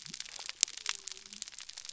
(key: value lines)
label: biophony
recorder: SoundTrap 300